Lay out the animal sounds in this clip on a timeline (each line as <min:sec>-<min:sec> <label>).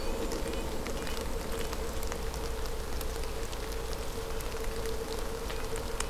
0:00.0-0:01.2 Red-breasted Nuthatch (Sitta canadensis)
0:00.0-0:02.2 Golden-crowned Kinglet (Regulus satrapa)